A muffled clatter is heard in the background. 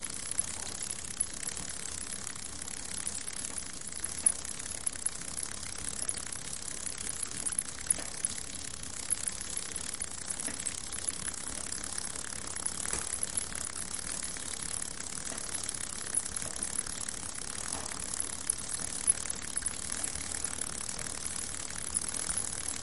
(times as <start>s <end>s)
4.2s 4.4s, 7.9s 8.1s, 12.9s 13.2s, 15.3s 15.5s, 17.7s 18.0s